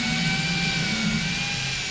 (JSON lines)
{"label": "anthrophony, boat engine", "recorder": "SoundTrap 500"}